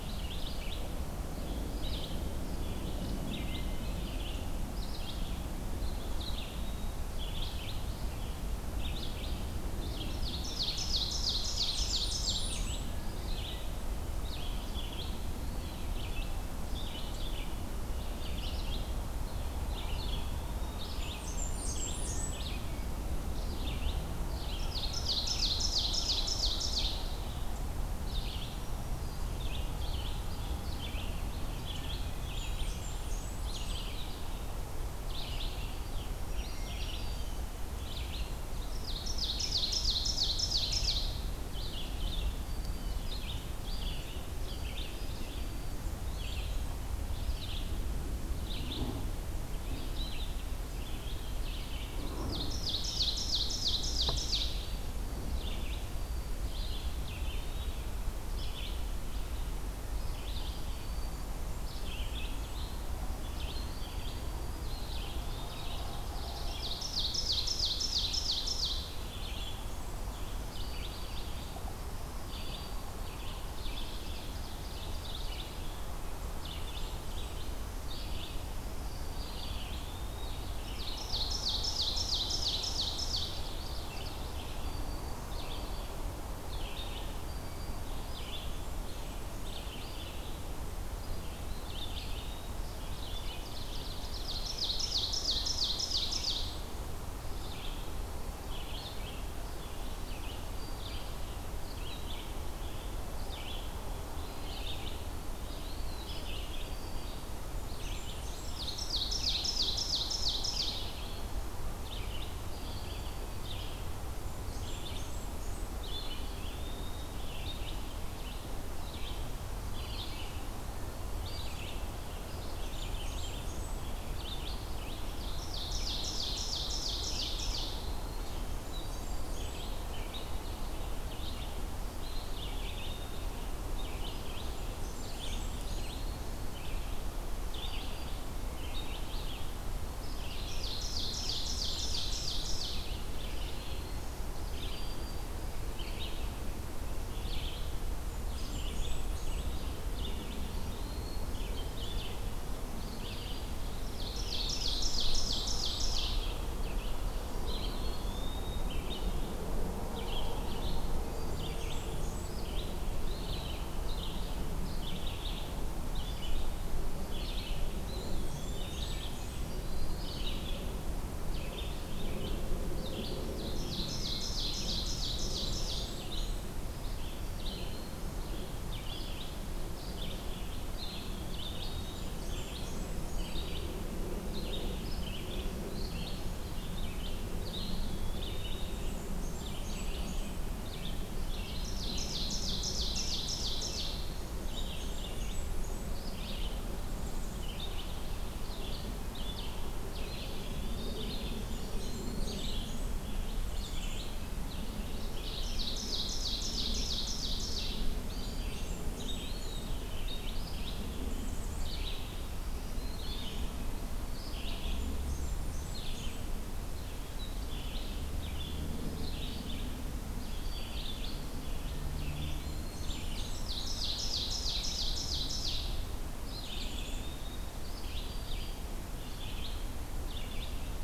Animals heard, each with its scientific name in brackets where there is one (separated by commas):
Wood Thrush (Hylocichla mustelina), Blackburnian Warbler (Setophaga fusca), Black-capped Chickadee (Poecile atricapillus), Red-eyed Vireo (Vireo olivaceus), Eastern Wood-Pewee (Contopus virens), Hermit Thrush (Catharus guttatus), Black-throated Green Warbler (Setophaga virens), Ovenbird (Seiurus aurocapilla)